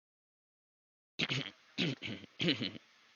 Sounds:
Throat clearing